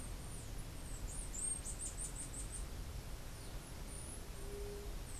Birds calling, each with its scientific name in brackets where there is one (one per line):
White-tipped Dove (Leptotila verreauxi)
Bananaquit (Coereba flaveola)